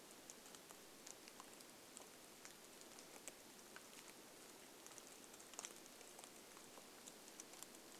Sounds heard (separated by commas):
rain